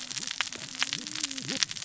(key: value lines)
label: biophony, cascading saw
recorder: SoundTrap 600 or HydroMoth